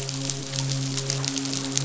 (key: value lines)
label: biophony, midshipman
recorder: SoundTrap 500